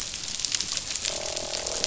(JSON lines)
{"label": "biophony, croak", "recorder": "SoundTrap 500"}